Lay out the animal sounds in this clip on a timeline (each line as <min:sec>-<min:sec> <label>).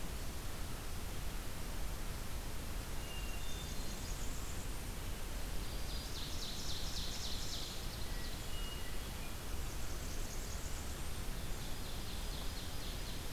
0:02.6-0:05.1 Blackburnian Warbler (Setophaga fusca)
0:02.9-0:04.1 Hermit Thrush (Catharus guttatus)
0:05.4-0:08.0 Ovenbird (Seiurus aurocapilla)
0:05.4-0:06.4 Black-throated Green Warbler (Setophaga virens)
0:07.9-0:09.3 Hermit Thrush (Catharus guttatus)
0:09.0-0:11.6 Blackburnian Warbler (Setophaga fusca)
0:11.3-0:13.3 Ovenbird (Seiurus aurocapilla)